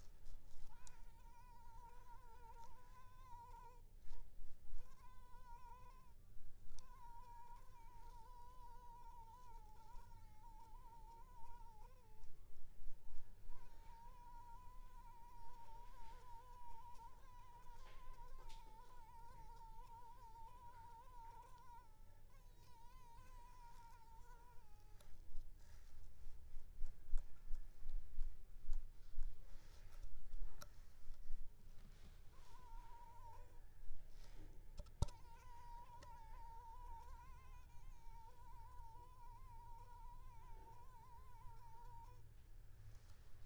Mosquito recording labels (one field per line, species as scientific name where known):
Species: Culex pipiens complex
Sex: female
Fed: unfed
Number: one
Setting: cup